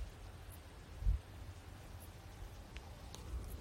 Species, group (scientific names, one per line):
Pholidoptera griseoaptera
Orthoptera